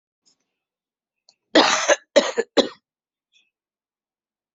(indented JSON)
{
  "expert_labels": [
    {
      "quality": "good",
      "cough_type": "wet",
      "dyspnea": false,
      "wheezing": false,
      "stridor": false,
      "choking": false,
      "congestion": false,
      "nothing": true,
      "diagnosis": "upper respiratory tract infection",
      "severity": "mild"
    }
  ]
}